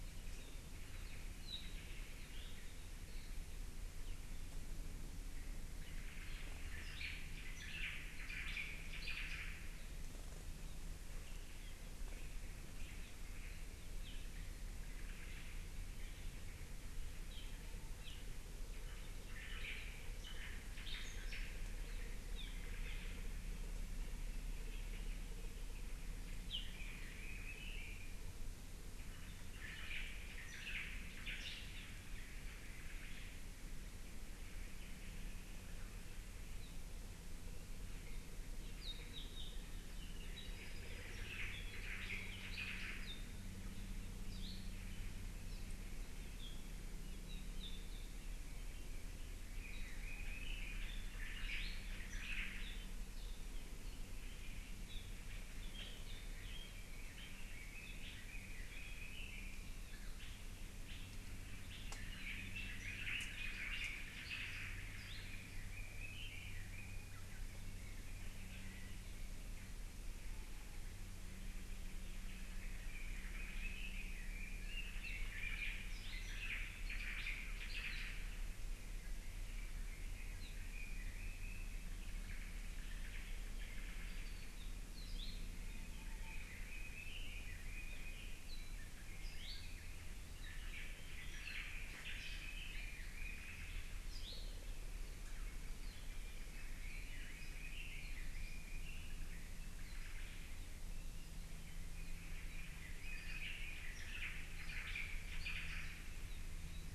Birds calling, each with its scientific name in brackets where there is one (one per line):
Omao (Myadestes obscurus)
Apapane (Himatione sanguinea)
Hawaii Akepa (Loxops coccineus)
Hawaii Elepaio (Chasiempis sandwichensis)
Iiwi (Drepanis coccinea)
Red-billed Leiothrix (Leiothrix lutea)